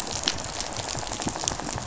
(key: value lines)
label: biophony, rattle
recorder: SoundTrap 500